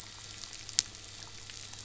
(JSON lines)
{"label": "anthrophony, boat engine", "recorder": "SoundTrap 500"}